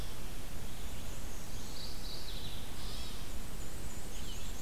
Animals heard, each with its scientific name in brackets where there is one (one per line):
White-tailed Deer (Odocoileus virginianus)
Black-and-white Warbler (Mniotilta varia)
Red-eyed Vireo (Vireo olivaceus)
Scarlet Tanager (Piranga olivacea)
Mourning Warbler (Geothlypis philadelphia)